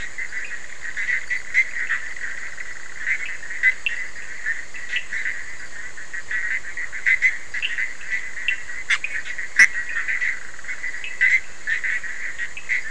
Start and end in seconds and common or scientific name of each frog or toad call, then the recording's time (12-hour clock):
1.6	3.3	Bischoff's tree frog
2.9	5.3	Cochran's lime tree frog
8.2	12.8	Cochran's lime tree frog
2:15am